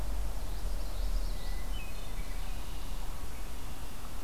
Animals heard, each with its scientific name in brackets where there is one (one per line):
Hermit Thrush (Catharus guttatus)
Red-winged Blackbird (Agelaius phoeniceus)
Common Yellowthroat (Geothlypis trichas)